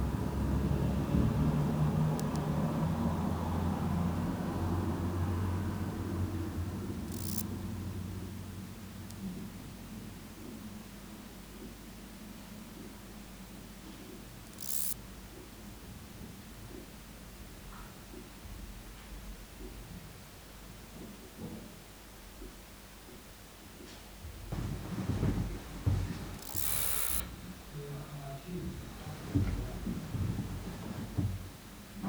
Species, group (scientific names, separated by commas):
Ctenodecticus ramburi, Orthoptera